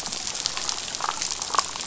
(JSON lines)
{"label": "biophony, damselfish", "recorder": "SoundTrap 500"}